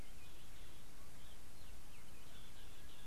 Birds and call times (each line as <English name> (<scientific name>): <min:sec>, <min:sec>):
Somali Tit (Melaniparus thruppi): 0:03.0